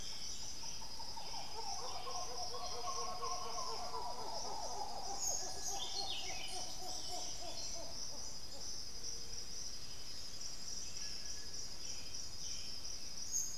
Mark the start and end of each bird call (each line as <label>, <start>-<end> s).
Buff-throated Saltator (Saltator maximus), 0.0-7.8 s
White-winged Becard (Pachyramphus polychopterus), 2.2-4.1 s
Black-billed Thrush (Turdus ignobilis), 10.0-13.6 s